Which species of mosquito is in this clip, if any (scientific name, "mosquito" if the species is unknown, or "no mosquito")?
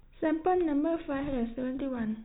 no mosquito